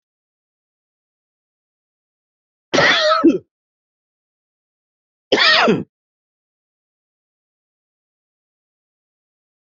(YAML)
expert_labels:
- quality: good
  cough_type: dry
  dyspnea: false
  wheezing: false
  stridor: false
  choking: false
  congestion: false
  nothing: true
  diagnosis: upper respiratory tract infection
  severity: mild
age: 54
gender: male
respiratory_condition: false
fever_muscle_pain: false
status: COVID-19